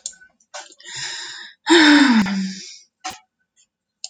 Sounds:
Sigh